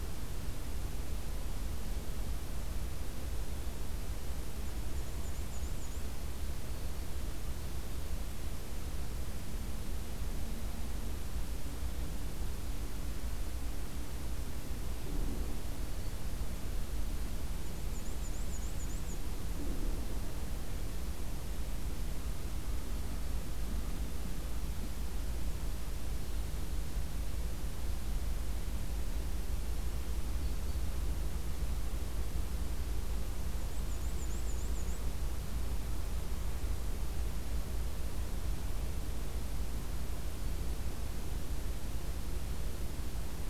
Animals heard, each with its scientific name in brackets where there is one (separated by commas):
Black-throated Green Warbler (Setophaga virens), Black-and-white Warbler (Mniotilta varia)